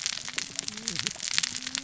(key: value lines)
label: biophony, cascading saw
recorder: SoundTrap 600 or HydroMoth